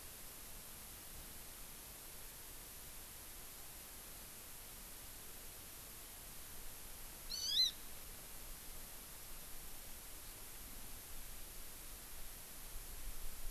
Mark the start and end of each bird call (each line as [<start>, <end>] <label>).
[7.27, 7.77] Hawaii Amakihi (Chlorodrepanis virens)